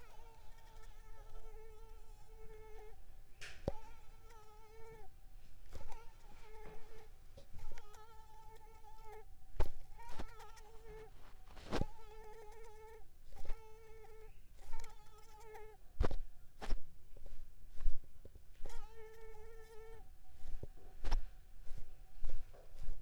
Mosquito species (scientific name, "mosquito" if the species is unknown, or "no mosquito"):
Mansonia uniformis